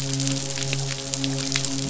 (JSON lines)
{"label": "biophony, midshipman", "recorder": "SoundTrap 500"}